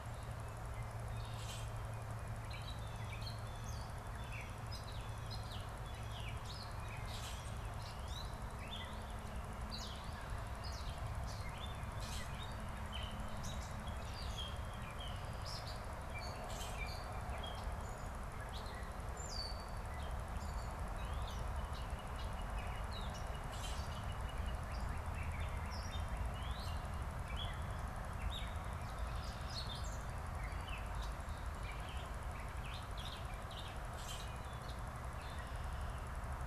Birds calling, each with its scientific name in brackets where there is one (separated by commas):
Gray Catbird (Dumetella carolinensis), Northern Cardinal (Cardinalis cardinalis), Common Grackle (Quiscalus quiscula)